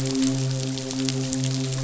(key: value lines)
label: biophony, midshipman
recorder: SoundTrap 500